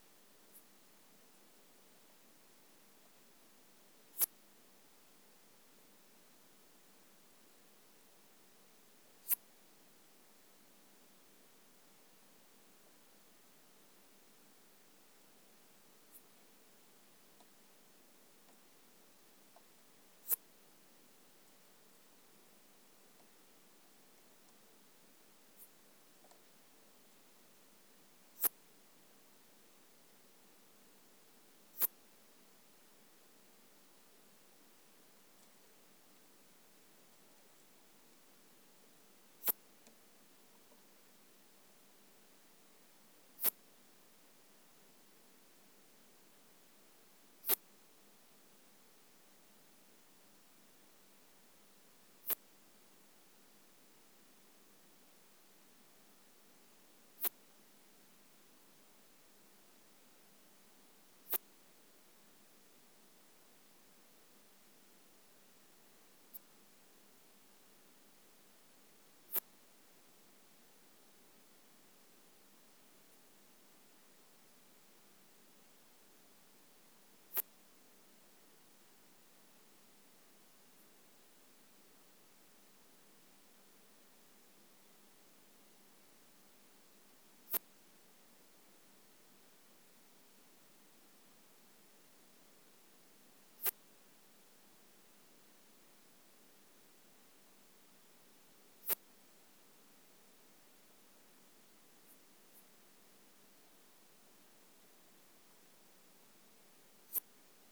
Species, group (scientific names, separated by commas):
Poecilimon affinis, Orthoptera